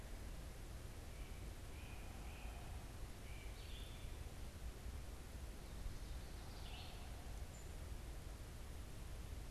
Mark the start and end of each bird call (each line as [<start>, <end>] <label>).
[0.00, 9.50] Red-eyed Vireo (Vireo olivaceus)
[0.73, 3.63] Great Crested Flycatcher (Myiarchus crinitus)
[7.33, 9.50] unidentified bird